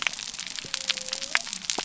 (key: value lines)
label: biophony
recorder: SoundTrap 300